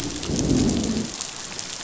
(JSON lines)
{"label": "biophony, growl", "recorder": "SoundTrap 500"}